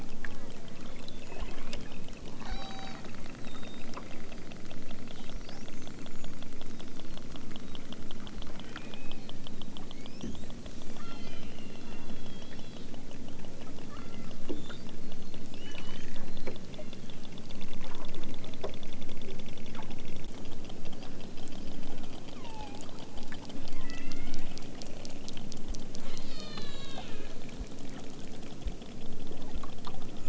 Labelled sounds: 0.3	0.6	killer whale, southern Alaska resident, 0.60 to 2.7 kHz
1.2	1.8	killer whale, southern Alaska resident, 0.60 to 3.5 kHz
2.4	3.0	killer whale, southern Alaska resident, 0.51 to 7.4 kHz
8.6	9.4	killer whale, southern Alaska resident, 1.2 to 3.0 kHz
10.9	12.9	killer whale, southern Alaska resident, 0.92 to 5.2 kHz
13.9	14.5	killer whale, southern Alaska resident, 0.74 to 3.9 kHz
15.5	17.2	killer whale, southern Alaska resident, 0.69 to 8.0 kHz
17.7	18.6	killer whale, southern Alaska resident, 0.60 to 8.0 kHz
22.3	22.8	killer whale, southern Alaska resident, 0.60 to 3.2 kHz
23.7	24.6	killer whale, southern Alaska resident, 0.88 to 5.9 kHz
25.9	27.4	killer whale, southern Alaska resident, 0.83 to 8.0 kHz

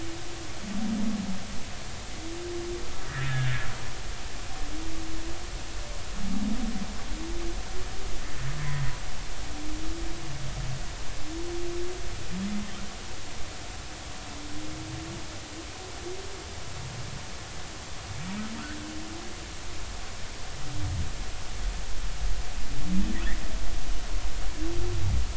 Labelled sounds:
3.1	3.3	humpback whale, 1.6 to 2.0 kHz

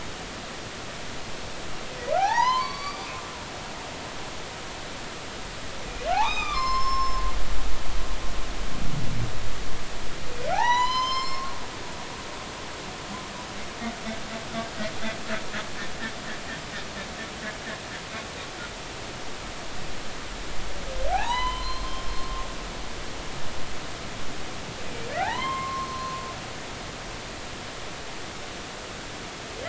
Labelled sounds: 2.1	3.1	humpback whale, 0.80 to 6.2 kHz
6.1	8.2	humpback whale, 0.80 to 6.3 kHz
10.5	12.3	humpback whale, 0.80 to 6.4 kHz
21.1	22.5	humpback whale, 0.80 to 6.2 kHz
25.2	26.2	humpback whale, 0.80 to 4.3 kHz

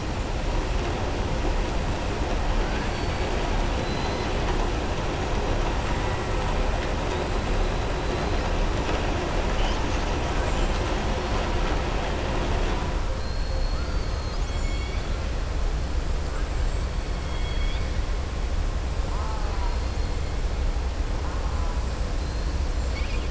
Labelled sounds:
2.8	3.3	killer whale, southern resident, 3.5 to 5.1 kHz
17.2	17.9	killer whale, southern resident, 1.9 to 4.8 kHz
22.8	23.2	killer whale, southern resident, 2.2 to 5.6 kHz

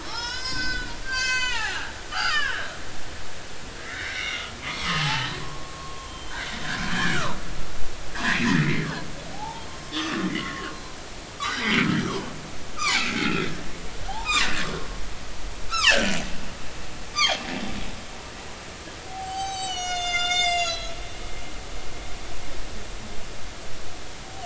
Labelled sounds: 0.0	2.7	humpback whale, 0.80 to 7.7 kHz
3.8	6.4	humpback whale, 0.80 to 5.9 kHz
6.9	7.2	humpback whale, 1.5 to 1.8 kHz
8.1	9.7	humpback whale, 0.80 to 2.4 kHz
10.0	10.8	humpback whale, 1.1 to 2.2 kHz
11.4	11.9	humpback whale, 1.4 to 4.0 kHz
12.8	13.5	humpback whale, 0.80 to 7.2 kHz
14.1	14.7	humpback whale, 0.80 to 7.6 kHz
15.7	16.2	humpback whale, 0.83 to 3.3 kHz
17.1	17.4	humpback whale, 0.80 to 3.6 kHz
19.1	21.6	humpback whale, 0.80 to 8.0 kHz

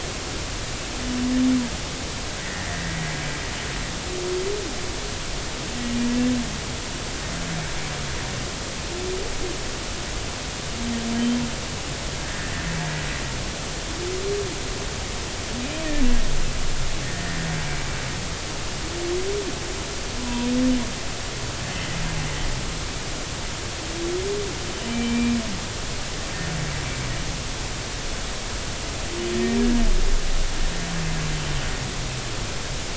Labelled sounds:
2.4	3.0	humpback whale, 1.7 to 2.1 kHz
11.2	11.4	humpback whale, 3.0 to 3.2 kHz
12.3	12.5	humpback whale, 1.5 to 1.9 kHz
17.0	17.4	humpback whale, 1.7 to 1.9 kHz
20.2	20.5	humpback whale, 0.93 to 1.0 kHz
24.9	25.4	humpback whale, 2.3 to 2.4 kHz

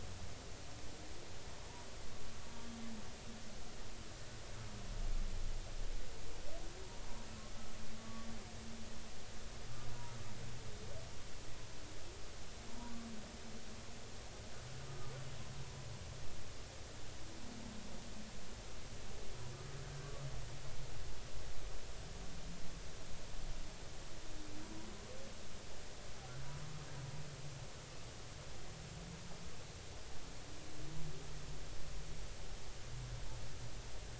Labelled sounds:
8.0	8.3	humpback whale, 1.1 to 1.2 kHz

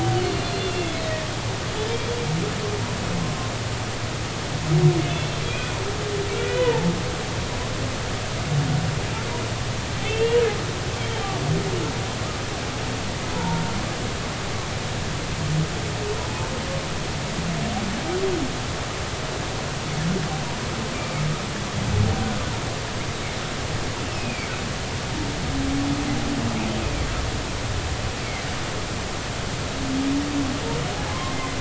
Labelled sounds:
0.2	1.0	humpback whale, 2.7 to 4.4 kHz
5.5	5.8	humpback whale, 2.3 to 2.6 kHz
6.3	6.9	humpback whale, 0.83 to 3.1 kHz
10.0	10.4	humpback whale, 2.6 to 2.9 kHz
13.3	13.6	humpback whale, 0.83 to 1.0 kHz
24.0	24.5	humpback whale, 2.0 to 2.8 kHz

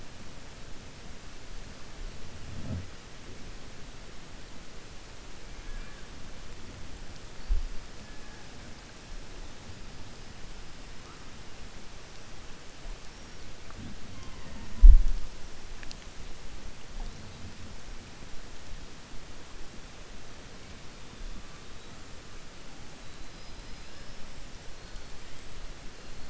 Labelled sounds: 23.2	24.2	killer whale, 4.1 to 5.4 kHz

